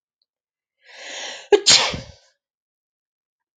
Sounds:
Sneeze